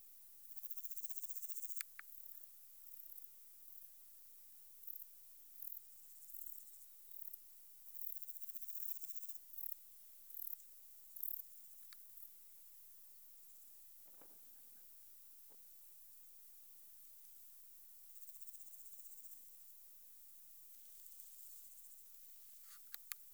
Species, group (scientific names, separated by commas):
Omocestus bolivari, Orthoptera